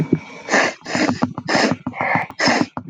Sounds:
Sniff